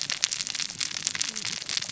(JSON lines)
{"label": "biophony, cascading saw", "recorder": "SoundTrap 600 or HydroMoth"}